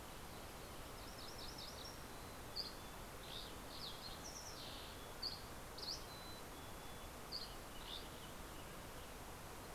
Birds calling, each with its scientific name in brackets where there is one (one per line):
Fox Sparrow (Passerella iliaca)
Mountain Chickadee (Poecile gambeli)
MacGillivray's Warbler (Geothlypis tolmiei)
Dusky Flycatcher (Empidonax oberholseri)
Western Tanager (Piranga ludoviciana)